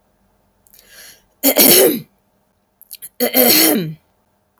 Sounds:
Throat clearing